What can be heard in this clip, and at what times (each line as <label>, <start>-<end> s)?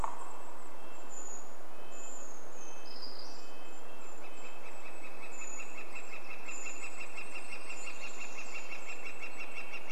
Brown Creeper call, 0-2 s
Golden-crowned Kinglet song, 0-2 s
woodpecker drumming, 0-2 s
Red-breasted Nuthatch song, 0-10 s
Brown Creeper song, 2-4 s
Golden-crowned Kinglet call, 2-6 s
Brown Creeper call, 4-8 s
Northern Flicker call, 4-10 s
Golden-crowned Kinglet song, 6-10 s